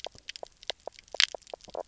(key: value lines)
label: biophony, knock croak
recorder: SoundTrap 300